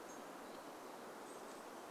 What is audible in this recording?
Chestnut-backed Chickadee call